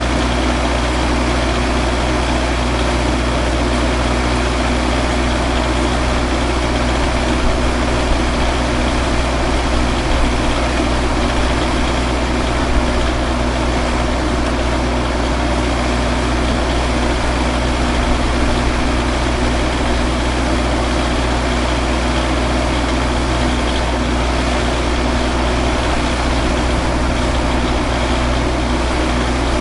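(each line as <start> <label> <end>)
0.0 A loud, static engine sound. 29.6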